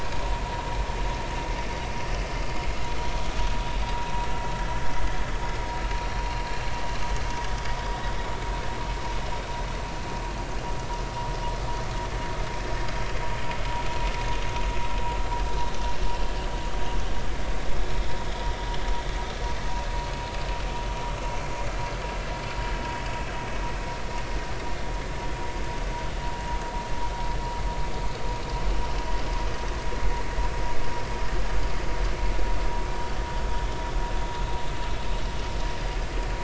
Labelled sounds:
6.0	6.3	vessel noise, 4.1 to 4.4 kHz

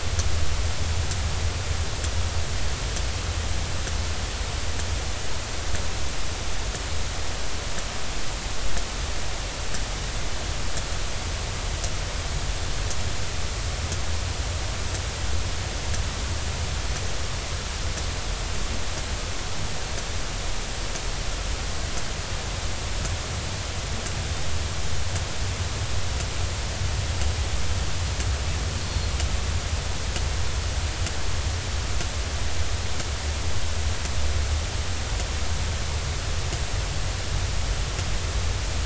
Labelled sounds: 28.8	29.1	Pacific white-sided dolphin, 4.2 to 4.4 kHz

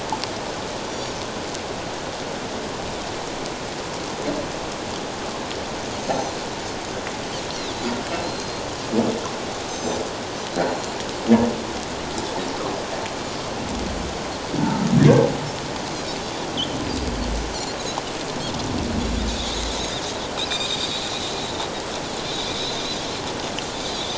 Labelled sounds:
0.9	1.2	Pacific white-sided dolphin, 5.6 to 7.0 kHz
6.0	6.4	Pacific white-sided dolphin, 4.1 to 6.4 kHz
7.5	8.6	Pacific white-sided dolphin, 3.9 to 4.6 kHz
9.7	10.0	Pacific white-sided dolphin, 4.9 to 7.6 kHz
10.5	11.0	Pacific white-sided dolphin, 4.0 to 4.2 kHz
14.6	14.9	humpback whale, 1.2 to 1.5 kHz
20.4	21.1	Pacific white-sided dolphin, 2.3 to 4.8 kHz

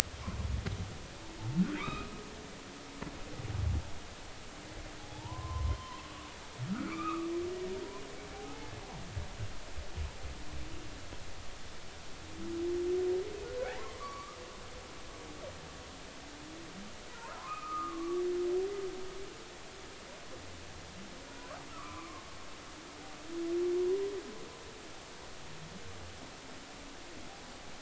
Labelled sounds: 1.7	2.1	humpback whale, 0.90 to 3.9 kHz
6.0	7.3	humpback whale, 0.80 to 2.7 kHz
8.3	8.7	humpback whale, 0.80 to 0.93 kHz
13.7	14.4	humpback whale, 0.93 to 4.6 kHz
17.4	18.2	humpback whale, 0.96 to 1.4 kHz
21.3	22.2	humpback whale, 0.96 to 1.4 kHz

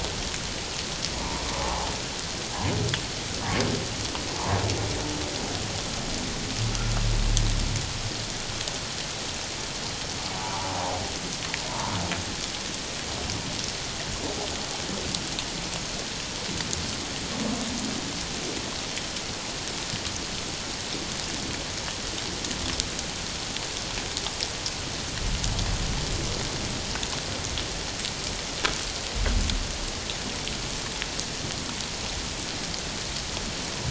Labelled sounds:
1.5	1.9	humpback whale, 0.78 to 1.2 kHz
10.4	10.7	humpback whale, 0.78 to 1.2 kHz
11.7	12.0	humpback whale, 0.88 to 1.2 kHz

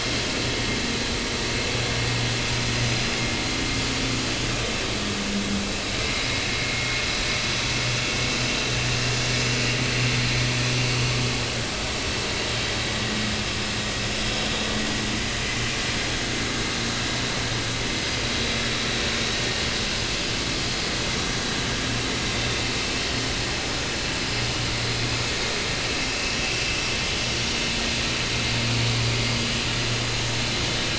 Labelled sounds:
4.5	4.7	vessel noise, 3.6 to 3.9 kHz
6.5	7.0	vessel noise, 2.1 to 2.2 kHz
22.3	22.6	vessel noise, 3.6 to 3.7 kHz

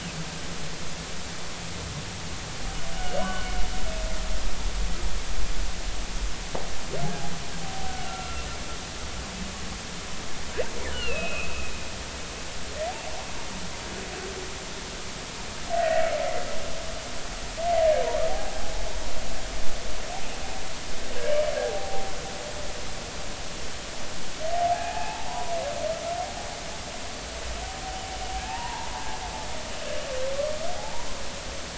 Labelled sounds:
3.2	3.5	humpback whale, 1.4 to 1.5 kHz
7.9	8.4	humpback whale, 1.3 to 1.5 kHz
10.9	11.8	humpback whale, 2.4 to 3.0 kHz
15.7	16.0	humpback whale, 1.8 to 2.0 kHz
18.3	18.7	humpback whale, 0.80 to 0.86 kHz
21.2	22.1	humpback whale, 0.80 to 2.4 kHz
24.5	26.2	humpback whale, 0.80 to 2.7 kHz
28.5	28.9	humpback whale, 0.80 to 1.1 kHz
30.8	31.1	humpback whale, 0.80 to 1.0 kHz

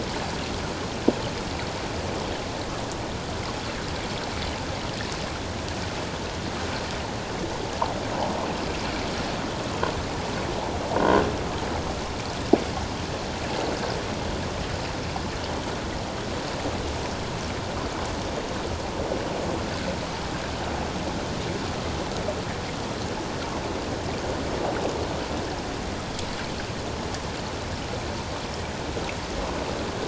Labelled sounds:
11.0	11.2	croaking sound likely from a nearby submerged object, 1.4 to 1.6 kHz

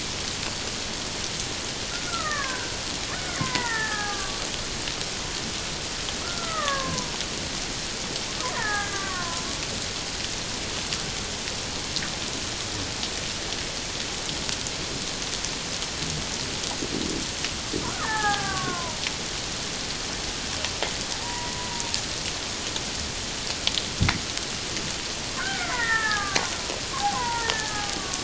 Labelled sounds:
1.9	4.4	killer whale, Bigg's (transient), 0.78 to 2.2 kHz
6.2	7.1	killer whale, Bigg's (transient), 0.91 to 2.1 kHz
8.6	9.4	killer whale, Bigg's (transient), 0.78 to 2.1 kHz
18.0	19.0	killer whale, Bigg's (transient), 0.78 to 1.8 kHz
21.2	21.7	killer whale, Bigg's (transient), 0.88 to 1.1 kHz
25.4	26.5	killer whale, Bigg's (transient), 0.78 to 2.4 kHz
27.1	28.2	killer whale, Bigg's (transient), 0.88 to 2.0 kHz

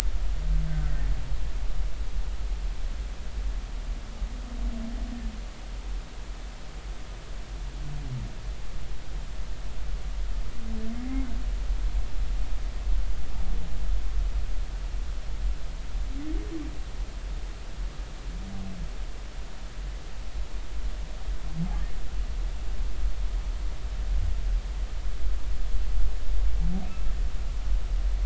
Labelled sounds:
0.7	1.0	humpback whale, 1.4 to 1.7 kHz

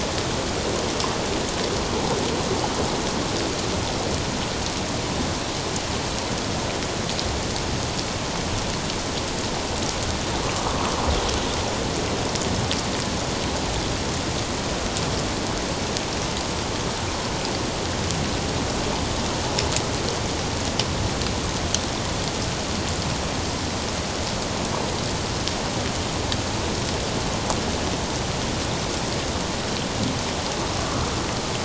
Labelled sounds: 10.5	10.9	water noise, 1.0 to 1.3 kHz

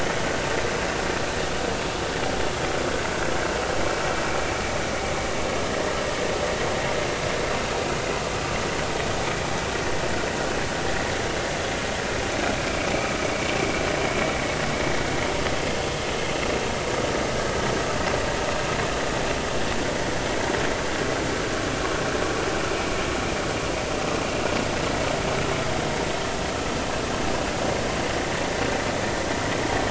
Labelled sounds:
12.9	13.2	vessel noise, 2.2 to 2.5 kHz

